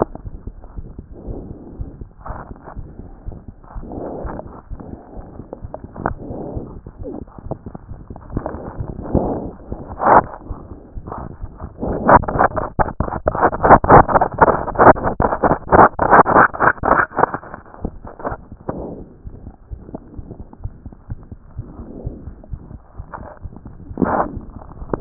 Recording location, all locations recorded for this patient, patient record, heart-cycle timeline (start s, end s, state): aortic valve (AV)
aortic valve (AV)+pulmonary valve (PV)+tricuspid valve (TV)
#Age: Child
#Sex: Male
#Height: nan
#Weight: 28.2 kg
#Pregnancy status: False
#Murmur: Present
#Murmur locations: aortic valve (AV)+pulmonary valve (PV)+tricuspid valve (TV)
#Most audible location: pulmonary valve (PV)
#Systolic murmur timing: Early-systolic
#Systolic murmur shape: Decrescendo
#Systolic murmur grading: I/VI
#Systolic murmur pitch: Low
#Systolic murmur quality: Blowing
#Diastolic murmur timing: nan
#Diastolic murmur shape: nan
#Diastolic murmur grading: nan
#Diastolic murmur pitch: nan
#Diastolic murmur quality: nan
#Outcome: Abnormal
#Campaign: 2014 screening campaign
0.00	20.35	unannotated
20.35	20.38	diastole
20.38	20.48	S1
20.48	20.64	systole
20.64	20.72	S2
20.72	20.84	diastole
20.84	20.94	S1
20.94	21.10	systole
21.10	21.20	S2
21.20	21.30	diastole
21.30	21.40	S1
21.40	21.58	systole
21.58	21.66	S2
21.66	21.78	diastole
21.78	21.88	S1
21.88	22.04	systole
22.04	22.16	S2
22.16	22.26	diastole
22.26	22.36	S1
22.36	22.52	systole
22.52	22.62	S2
22.62	22.72	diastole
22.72	22.82	S1
22.82	23.00	systole
23.00	23.06	S2
23.06	23.20	diastole
23.20	23.28	S1
23.28	23.46	systole
23.46	23.54	S2
23.54	23.66	diastole
23.66	25.01	unannotated